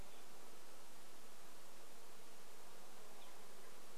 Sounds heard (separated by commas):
unidentified sound, insect buzz